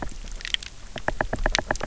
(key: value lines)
label: biophony, knock
recorder: SoundTrap 300